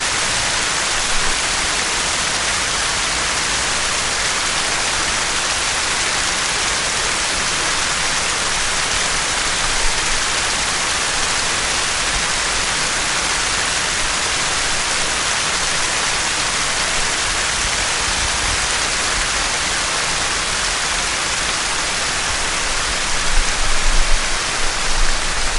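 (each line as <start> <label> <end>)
0.1 A waterfall rushing over rocks generates a continuous sound. 25.4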